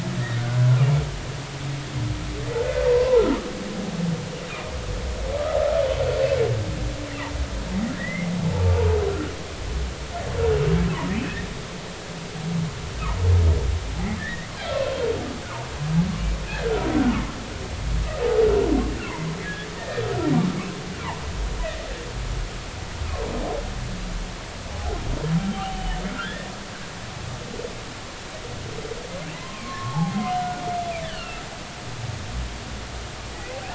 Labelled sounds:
0.3	0.6	humpback whale, 1.4 to 1.6 kHz
2.5	3.2	humpback whale, 0.83 to 1.6 kHz
8.0	8.3	humpback whale, 1.8 to 2.2 kHz
11.1	11.4	humpback whale, 2.3 to 2.7 kHz
14.2	14.5	humpback whale, 1.6 to 2.1 kHz
19.4	20.0	humpback whale, 1.6 to 1.9 kHz
24.7	25.0	humpback whale, 0.80 to 0.86 kHz
25.5	26.5	humpback whale, 1.2 to 3.2 kHz
29.4	31.4	humpback whale, 0.80 to 3.2 kHz

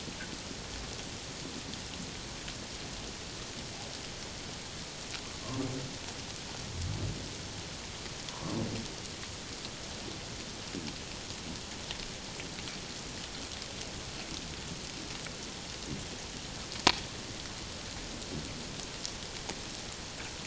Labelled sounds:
8.3	8.6	humpback whale, 0.91 to 1.2 kHz

